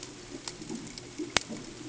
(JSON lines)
{"label": "ambient", "recorder": "HydroMoth"}